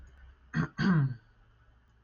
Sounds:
Throat clearing